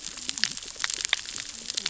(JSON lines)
{"label": "biophony, cascading saw", "recorder": "SoundTrap 600 or HydroMoth"}